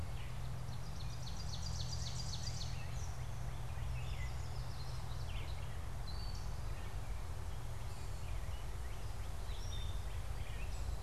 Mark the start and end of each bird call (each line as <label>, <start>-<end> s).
Gray Catbird (Dumetella carolinensis), 0.0-11.0 s
Ovenbird (Seiurus aurocapilla), 0.4-2.9 s
Northern Cardinal (Cardinalis cardinalis), 2.2-4.2 s
Yellow Warbler (Setophaga petechia), 3.8-5.2 s
Northern Cardinal (Cardinalis cardinalis), 7.9-10.9 s